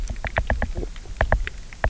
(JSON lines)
{"label": "biophony, knock", "recorder": "SoundTrap 300"}